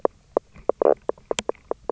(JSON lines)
{"label": "biophony, knock croak", "recorder": "SoundTrap 300"}